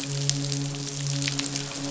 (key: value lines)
label: biophony, midshipman
recorder: SoundTrap 500